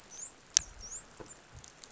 {"label": "biophony, dolphin", "recorder": "SoundTrap 500"}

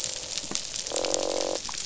{"label": "biophony, croak", "recorder": "SoundTrap 500"}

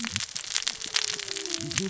{"label": "biophony, cascading saw", "recorder": "SoundTrap 600 or HydroMoth"}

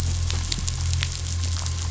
{"label": "anthrophony, boat engine", "recorder": "SoundTrap 500"}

